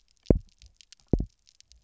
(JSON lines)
{"label": "biophony, double pulse", "recorder": "SoundTrap 300"}